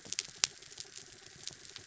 {"label": "anthrophony, mechanical", "recorder": "SoundTrap 300"}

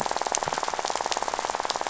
{"label": "biophony, rattle", "recorder": "SoundTrap 500"}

